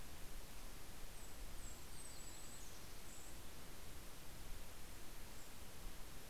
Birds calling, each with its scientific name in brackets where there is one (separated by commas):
Yellow-rumped Warbler (Setophaga coronata), Golden-crowned Kinglet (Regulus satrapa)